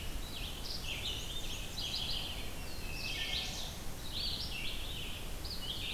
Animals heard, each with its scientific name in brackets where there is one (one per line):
Red-eyed Vireo (Vireo olivaceus)
Wood Thrush (Hylocichla mustelina)
Black-and-white Warbler (Mniotilta varia)
Chestnut-sided Warbler (Setophaga pensylvanica)